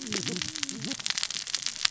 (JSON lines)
{"label": "biophony, cascading saw", "recorder": "SoundTrap 600 or HydroMoth"}